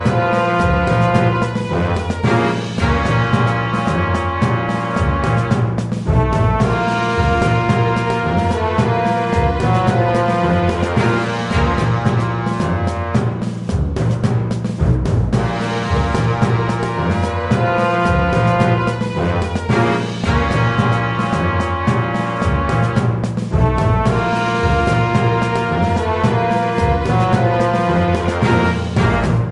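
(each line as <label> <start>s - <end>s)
Rhythmic marching music played by a wind orchestra. 0.0s - 29.5s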